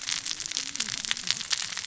{"label": "biophony, cascading saw", "recorder": "SoundTrap 600 or HydroMoth"}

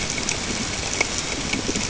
{"label": "ambient", "recorder": "HydroMoth"}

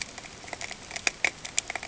{"label": "ambient", "recorder": "HydroMoth"}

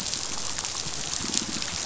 {"label": "biophony", "recorder": "SoundTrap 500"}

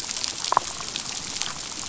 {"label": "biophony, damselfish", "recorder": "SoundTrap 500"}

